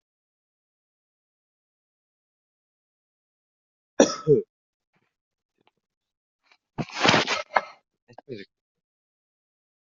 {"expert_labels": [{"quality": "ok", "cough_type": "unknown", "dyspnea": false, "wheezing": false, "stridor": false, "choking": false, "congestion": false, "nothing": true, "diagnosis": "healthy cough", "severity": "pseudocough/healthy cough"}], "age": 24, "gender": "male", "respiratory_condition": false, "fever_muscle_pain": false, "status": "COVID-19"}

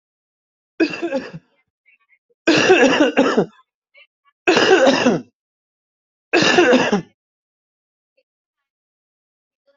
{"expert_labels": [{"quality": "good", "cough_type": "wet", "dyspnea": false, "wheezing": false, "stridor": false, "choking": false, "congestion": false, "nothing": true, "diagnosis": "lower respiratory tract infection", "severity": "unknown"}], "age": 46, "gender": "male", "respiratory_condition": false, "fever_muscle_pain": false, "status": "healthy"}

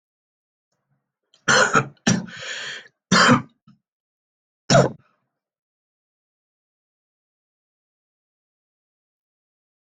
{"expert_labels": [{"quality": "ok", "cough_type": "unknown", "dyspnea": false, "wheezing": false, "stridor": false, "choking": false, "congestion": false, "nothing": true, "diagnosis": "lower respiratory tract infection", "severity": "mild"}], "age": 40, "gender": "male", "respiratory_condition": false, "fever_muscle_pain": false, "status": "symptomatic"}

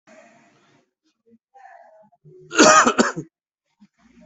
{"expert_labels": [{"quality": "good", "cough_type": "dry", "dyspnea": false, "wheezing": false, "stridor": false, "choking": false, "congestion": false, "nothing": true, "diagnosis": "healthy cough", "severity": "pseudocough/healthy cough"}], "age": 29, "gender": "male", "respiratory_condition": true, "fever_muscle_pain": true, "status": "COVID-19"}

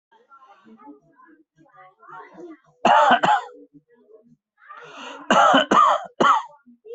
{"expert_labels": [{"quality": "ok", "cough_type": "dry", "dyspnea": false, "wheezing": false, "stridor": false, "choking": false, "congestion": false, "nothing": true, "diagnosis": "COVID-19", "severity": "mild"}], "age": 45, "gender": "male", "respiratory_condition": false, "fever_muscle_pain": false, "status": "healthy"}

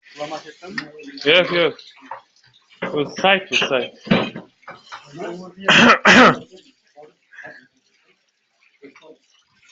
{"expert_labels": [{"quality": "good", "cough_type": "dry", "dyspnea": false, "wheezing": false, "stridor": false, "choking": false, "congestion": false, "nothing": true, "diagnosis": "healthy cough", "severity": "pseudocough/healthy cough"}], "age": 23, "gender": "female", "respiratory_condition": false, "fever_muscle_pain": false, "status": "COVID-19"}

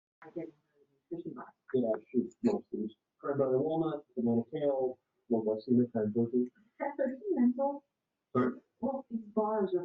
{"expert_labels": [{"quality": "no cough present", "cough_type": "unknown", "dyspnea": false, "wheezing": false, "stridor": false, "choking": false, "congestion": false, "nothing": true, "diagnosis": "healthy cough", "severity": "pseudocough/healthy cough"}]}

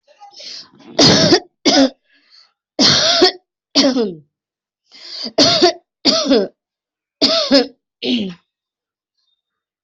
{"expert_labels": [{"quality": "good", "cough_type": "dry", "dyspnea": false, "wheezing": false, "stridor": false, "choking": false, "congestion": false, "nothing": true, "diagnosis": "upper respiratory tract infection", "severity": "mild"}], "age": 34, "gender": "female", "respiratory_condition": false, "fever_muscle_pain": false, "status": "symptomatic"}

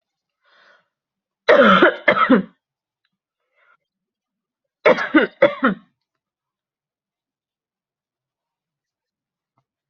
{"expert_labels": [{"quality": "good", "cough_type": "dry", "dyspnea": false, "wheezing": false, "stridor": false, "choking": false, "congestion": false, "nothing": false, "diagnosis": "upper respiratory tract infection", "severity": "mild"}], "age": 26, "gender": "female", "respiratory_condition": false, "fever_muscle_pain": true, "status": "symptomatic"}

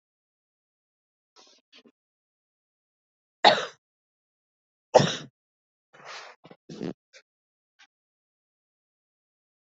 {"expert_labels": [{"quality": "good", "cough_type": "dry", "dyspnea": false, "wheezing": false, "stridor": false, "choking": false, "congestion": false, "nothing": true, "diagnosis": "COVID-19", "severity": "mild"}], "age": 48, "gender": "female", "respiratory_condition": false, "fever_muscle_pain": false, "status": "healthy"}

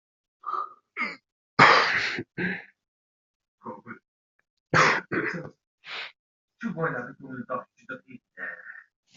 {"expert_labels": [{"quality": "good", "cough_type": "dry", "dyspnea": false, "wheezing": false, "stridor": false, "choking": false, "congestion": true, "nothing": false, "diagnosis": "upper respiratory tract infection", "severity": "mild"}], "age": 20, "gender": "male", "respiratory_condition": false, "fever_muscle_pain": false, "status": "COVID-19"}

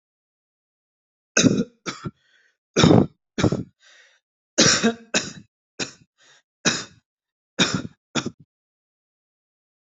{"expert_labels": [{"quality": "good", "cough_type": "dry", "dyspnea": false, "wheezing": false, "stridor": false, "choking": false, "congestion": false, "nothing": true, "diagnosis": "obstructive lung disease", "severity": "severe"}], "age": 20, "gender": "male", "respiratory_condition": false, "fever_muscle_pain": false, "status": "healthy"}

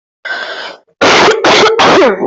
{"expert_labels": [{"quality": "ok", "cough_type": "unknown", "dyspnea": true, "wheezing": false, "stridor": true, "choking": false, "congestion": false, "nothing": false, "diagnosis": "obstructive lung disease", "severity": "mild"}], "gender": "other", "respiratory_condition": false, "fever_muscle_pain": false, "status": "COVID-19"}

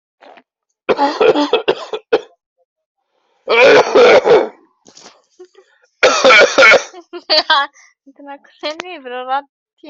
{"expert_labels": [{"quality": "ok", "cough_type": "wet", "dyspnea": false, "wheezing": false, "stridor": false, "choking": false, "congestion": false, "nothing": true, "diagnosis": "lower respiratory tract infection", "severity": "mild"}], "age": 28, "gender": "female", "respiratory_condition": true, "fever_muscle_pain": true, "status": "COVID-19"}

